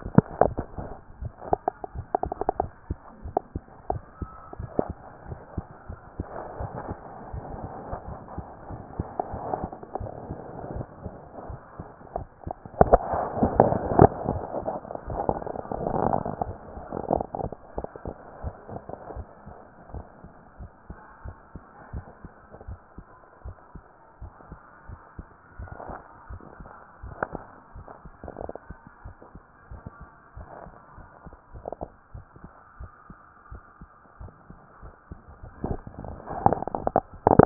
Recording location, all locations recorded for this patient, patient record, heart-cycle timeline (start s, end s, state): tricuspid valve (TV)
pulmonary valve (PV)+tricuspid valve (TV)+mitral valve (MV)
#Age: Child
#Sex: Female
#Height: 123.0 cm
#Weight: 25.8 kg
#Pregnancy status: False
#Murmur: Absent
#Murmur locations: nan
#Most audible location: nan
#Systolic murmur timing: nan
#Systolic murmur shape: nan
#Systolic murmur grading: nan
#Systolic murmur pitch: nan
#Systolic murmur quality: nan
#Diastolic murmur timing: nan
#Diastolic murmur shape: nan
#Diastolic murmur grading: nan
#Diastolic murmur pitch: nan
#Diastolic murmur quality: nan
#Outcome: Normal
#Campaign: 2014 screening campaign
0.00	17.88	unannotated
17.88	18.06	systole
18.06	18.16	S2
18.16	18.42	diastole
18.42	18.54	S1
18.54	18.70	systole
18.70	18.82	S2
18.82	19.16	diastole
19.16	19.26	S1
19.26	19.46	systole
19.46	19.56	S2
19.56	19.94	diastole
19.94	20.04	S1
20.04	20.24	systole
20.24	20.32	S2
20.32	20.60	diastole
20.60	20.70	S1
20.70	20.88	systole
20.88	20.98	S2
20.98	21.24	diastole
21.24	21.36	S1
21.36	21.54	systole
21.54	21.64	S2
21.64	21.92	diastole
21.92	22.04	S1
22.04	22.24	systole
22.24	22.32	S2
22.32	22.68	diastole
22.68	22.78	S1
22.78	22.98	systole
22.98	23.06	S2
23.06	23.44	diastole
23.44	23.56	S1
23.56	23.76	systole
23.76	23.84	S2
23.84	24.20	diastole
24.20	24.32	S1
24.32	24.50	systole
24.50	24.60	S2
24.60	24.88	diastole
24.88	25.00	S1
25.00	25.18	systole
25.18	25.26	S2
25.26	25.58	diastole
25.58	25.70	S1
25.70	25.88	systole
25.88	25.98	S2
25.98	26.30	diastole
26.30	26.42	S1
26.42	26.60	systole
26.60	26.68	S2
26.68	27.04	diastole
27.04	27.14	S1
27.14	27.32	systole
27.32	27.42	S2
27.42	27.76	diastole
27.76	27.86	S1
27.86	28.04	systole
28.04	28.14	S2
28.14	28.40	diastole
28.40	28.52	S1
28.52	28.68	systole
28.68	28.78	S2
28.78	29.04	diastole
29.04	29.14	S1
29.14	29.34	systole
29.34	29.42	S2
29.42	29.70	diastole
29.70	29.80	S1
29.80	30.00	systole
30.00	30.10	S2
30.10	30.36	diastole
30.36	30.48	S1
30.48	30.64	systole
30.64	30.74	S2
30.74	30.98	diastole
30.98	31.08	S1
31.08	31.26	systole
31.26	31.34	S2
31.34	31.54	diastole
31.54	31.64	S1
31.64	31.80	systole
31.80	31.90	S2
31.90	32.14	diastole
32.14	32.18	S1
32.18	37.46	unannotated